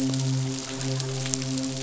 {"label": "biophony, midshipman", "recorder": "SoundTrap 500"}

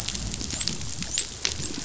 {"label": "biophony, dolphin", "recorder": "SoundTrap 500"}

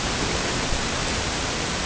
{"label": "ambient", "recorder": "HydroMoth"}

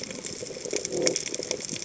{"label": "biophony", "recorder": "HydroMoth"}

